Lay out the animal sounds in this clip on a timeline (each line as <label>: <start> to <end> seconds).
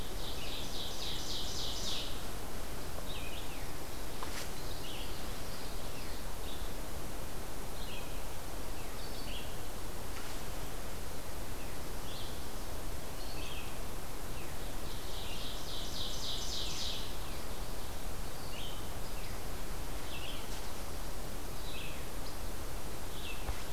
Ovenbird (Seiurus aurocapilla): 0.0 to 2.2 seconds
Red-eyed Vireo (Vireo olivaceus): 0.0 to 23.7 seconds
Common Yellowthroat (Geothlypis trichas): 4.5 to 6.3 seconds
Ovenbird (Seiurus aurocapilla): 14.7 to 17.1 seconds
Least Flycatcher (Empidonax minimus): 19.1 to 19.4 seconds
Least Flycatcher (Empidonax minimus): 22.1 to 22.4 seconds